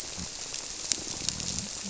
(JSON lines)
{"label": "biophony", "recorder": "SoundTrap 300"}